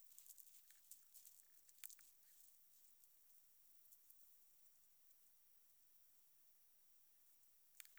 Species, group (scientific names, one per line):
Metrioptera saussuriana
Orthoptera